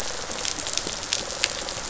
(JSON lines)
{"label": "biophony, rattle response", "recorder": "SoundTrap 500"}